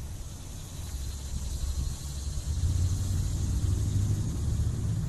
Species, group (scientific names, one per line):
Neotibicen tibicen
Cicadidae